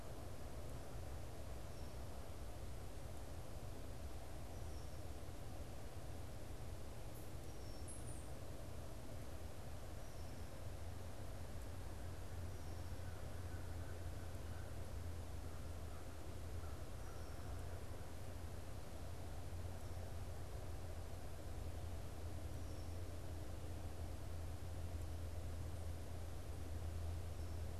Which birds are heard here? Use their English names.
Red-winged Blackbird, American Crow